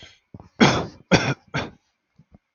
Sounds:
Cough